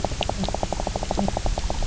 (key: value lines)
label: biophony, knock croak
recorder: SoundTrap 300